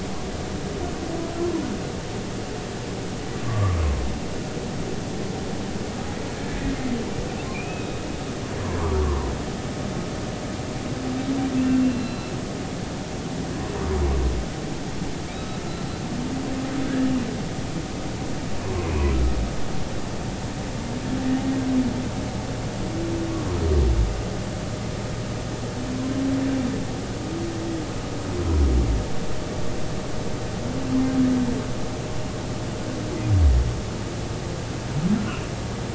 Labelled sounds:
3.4	3.8	humpback whale, 1.1 to 1.3 kHz
6.4	6.6	humpback whale, 1.6 to 1.8 kHz
7.5	8.0	humpback whale, 2.2 to 2.7 kHz
8.6	9.0	humpback whale, 0.90 to 1.3 kHz
11.8	12.4	humpback whale, 2.6 to 4.1 kHz
15.6	15.9	humpback whale, 1.3 to 1.4 kHz
18.6	19.1	humpback whale, 0.93 to 1.2 kHz

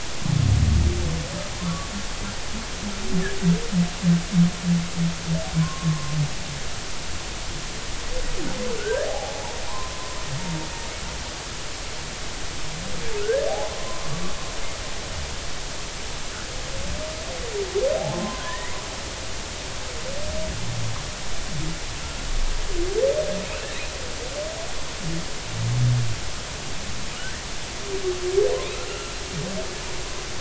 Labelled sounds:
1.6	1.9	humpback whale, 1.0 to 1.2 kHz
5.5	6.2	humpback whale, 0.99 to 1.2 kHz
8.8	10.0	humpback whale, 0.80 to 1.8 kHz
13.2	13.4	humpback whale, 1.3 to 1.8 kHz
18.0	18.8	humpback whale, 0.80 to 2.2 kHz
23.5	23.7	humpback whale, 2.4 to 2.8 kHz
27.1	27.4	humpback whale, 1.2 to 1.6 kHz
28.9	29.2	humpback whale, 1.3 to 1.4 kHz

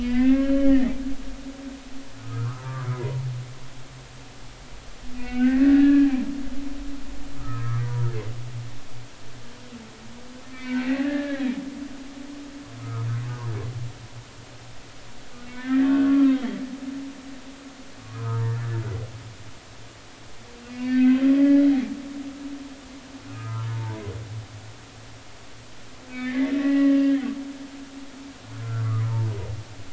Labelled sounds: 0.0	1.0	humpback whale, 1.4 to 3.1 kHz
2.2	3.2	humpback whale, 0.93 to 2.1 kHz
5.2	6.1	humpback whale, 1.4 to 2.9 kHz
7.4	8.1	humpback whale, 0.90 to 1.4 kHz
10.5	11.4	humpback whale, 1.6 to 4.3 kHz
12.8	13.1	humpback whale, 0.99 to 1.4 kHz
15.5	16.6	humpback whale, 1.2 to 2.4 kHz
18.0	18.8	humpback whale, 0.86 to 2.0 kHz
20.7	21.6	humpback whale, 1.5 to 2.7 kHz
23.3	24.1	humpback whale, 0.83 to 1.4 kHz
26.1	27.0	humpback whale, 1.7 to 2.3 kHz
28.6	29.3	humpback whale, 0.86 to 1.6 kHz

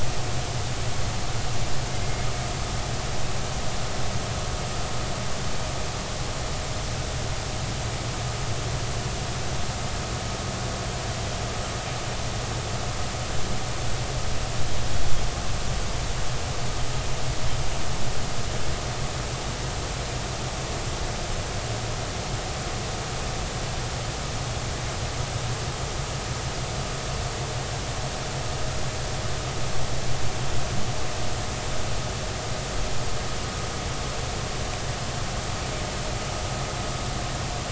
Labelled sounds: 1.9	2.3	killer whale, Bigg's (transient), 2.0 to 2.2 kHz

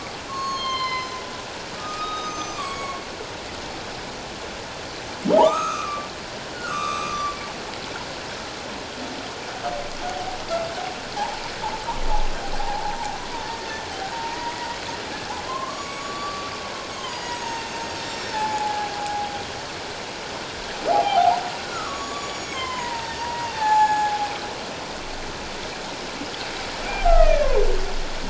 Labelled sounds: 0.3	1.2	humpback whale, 0.94 to 6.6 kHz
1.8	3.0	humpback whale, 1.0 to 6.7 kHz
5.4	7.4	humpback whale, 0.78 to 6.6 kHz
11.2	11.4	humpback whale, 0.78 to 1.0 kHz
12.6	14.7	humpback whale, 0.78 to 2.0 kHz
15.5	19.3	humpback whale, 0.78 to 7.6 kHz
20.9	24.3	humpback whale, 0.78 to 7.8 kHz
26.9	27.6	humpback whale, 0.78 to 2.6 kHz

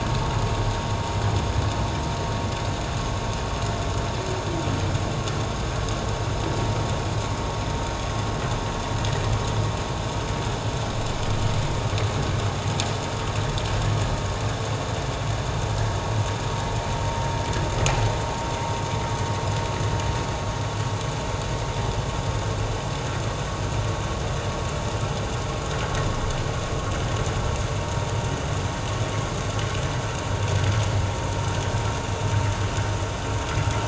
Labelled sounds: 27.8	28.1	vessel noise, 0.91 to 1.0 kHz

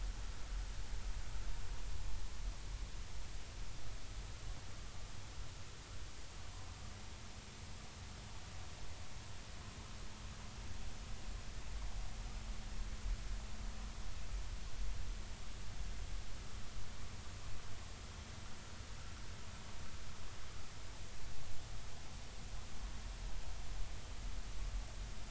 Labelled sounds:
4.8	5.1	vessel noise, 1.15 to 1.22 kHz

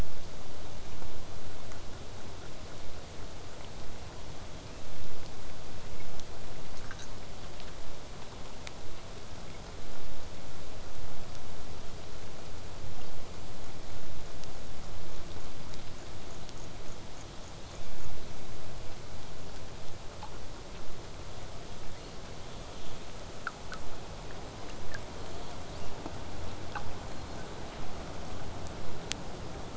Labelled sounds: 9.8	14.8	vessel noise, 0 to 8.0 kHz
17.7	18.1	killer whale, southern resident, 2.2 to 3.7 kHz
21.3	23.1	killer whale, southern resident, 2.0 to 4.8 kHz
25.1	27.8	killer whale, southern resident, 1.8 to 7.9 kHz

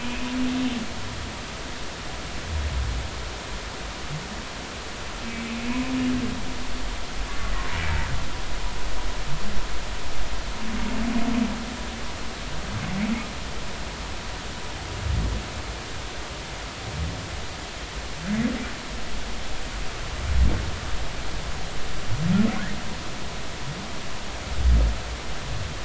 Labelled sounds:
7.4	7.7	humpback whale, 1.8 to 2.1 kHz

